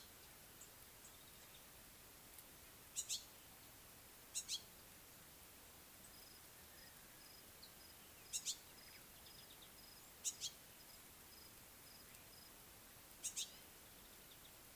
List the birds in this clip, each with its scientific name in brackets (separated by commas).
Yellow-spotted Bush Sparrow (Gymnoris pyrgita)